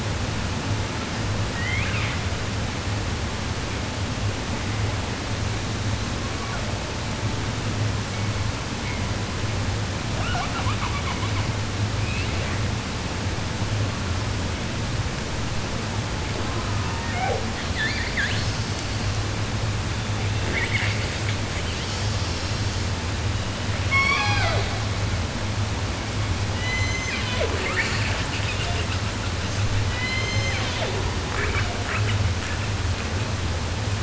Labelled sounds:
1.4	2.4	killer whale, 0.10 to 5.8 kHz
5.9	7.1	killer whale, 0.24 to 2.4 kHz
10.1	11.6	killer whale, southern resident, 0.10 to 7.5 kHz
11.9	12.7	killer whale, 0.10 to 5.9 kHz
16.3	17.5	killer whale, southern resident, 0.10 to 3.0 kHz
17.5	19.3	killer whale, 1.2 to 8.0 kHz
19.9	22.9	killer whale, 0.10 to 8.0 kHz
23.8	24.9	killer whale, southern resident, J pod, call S01, 0.10 to 8.0 kHz
26.2	29.7	killer whale, 0.29 to 8.0 kHz
29.8	31.2	killer whale, southern resident, J pod, call S01, 0.10 to 8.0 kHz
31.3	33.4	killer whale, 0.28 to 3.5 kHz

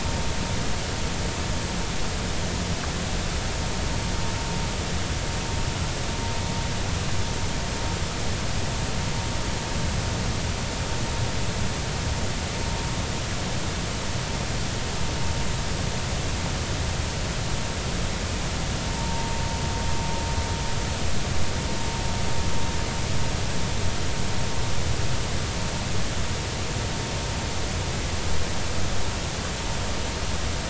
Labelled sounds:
18.9	19.3	vessel noise, 0.86 to 0.99 kHz

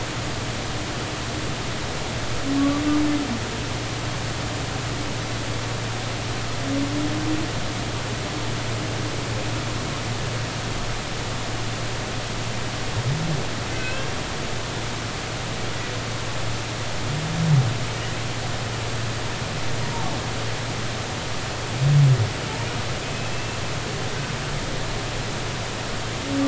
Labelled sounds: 2.6	2.8	humpback whale, 1.1 to 1.2 kHz
13.7	14.1	humpback whale, 1.5 to 2.8 kHz
23.0	23.6	humpback whale, 2.5 to 2.7 kHz

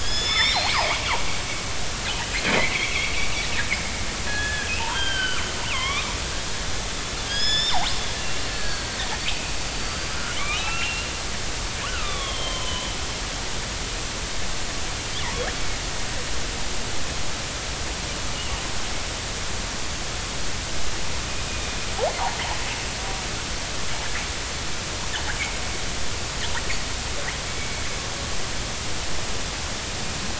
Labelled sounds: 0.0	0.8	killer whale, northern resident, 1.7 to 7.4 kHz
2.5	3.1	killer whale, northern resident, 2.0 to 2.4 kHz
4.3	5.4	killer whale, northern resident, 1.1 to 3.3 kHz
5.7	6.1	killer whale, northern resident, 0.96 to 3.8 kHz
6.6	7.9	killer whale, northern resident, 1.6 to 7.3 kHz
8.2	8.9	killer whale, northern resident, 1.6 to 4.5 kHz
9.3	11.1	killer whale, northern resident, 1.2 to 4.8 kHz
11.9	13.0	killer whale, northern resident, 0.93 to 3.7 kHz

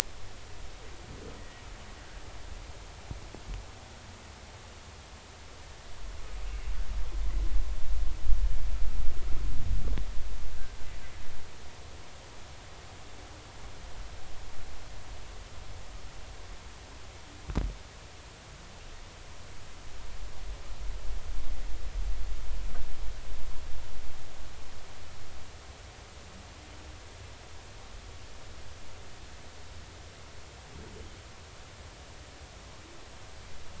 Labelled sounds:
1.4	1.6	humpback whale, 1.8 to 2.0 kHz

